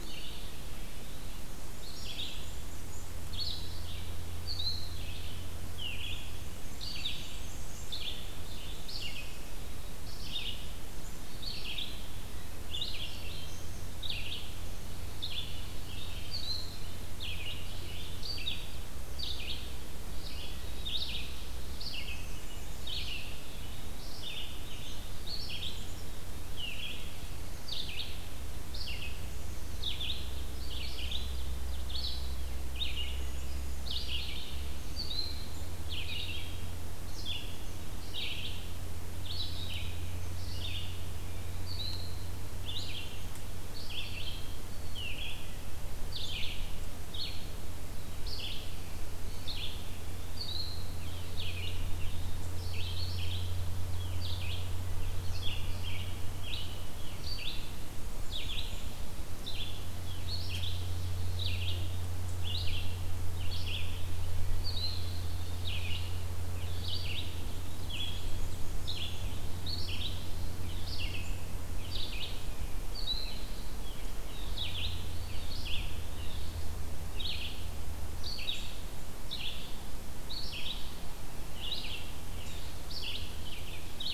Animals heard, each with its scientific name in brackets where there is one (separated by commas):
Black-and-white Warbler (Mniotilta varia), Black-capped Chickadee (Poecile atricapillus), Red-eyed Vireo (Vireo olivaceus), Eastern Wood-Pewee (Contopus virens), Ovenbird (Seiurus aurocapilla)